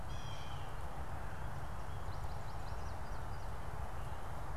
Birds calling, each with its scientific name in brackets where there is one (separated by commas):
American Goldfinch (Spinus tristis), Blue Jay (Cyanocitta cristata)